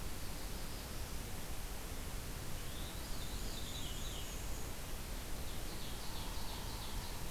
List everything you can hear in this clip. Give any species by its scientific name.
Setophaga caerulescens, Catharus fuscescens, Mniotilta varia, Seiurus aurocapilla, Dryobates pubescens